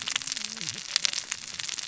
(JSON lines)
{"label": "biophony, cascading saw", "recorder": "SoundTrap 600 or HydroMoth"}